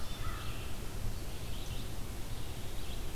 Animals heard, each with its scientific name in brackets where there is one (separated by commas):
Red-eyed Vireo (Vireo olivaceus), Wood Thrush (Hylocichla mustelina), American Crow (Corvus brachyrhynchos)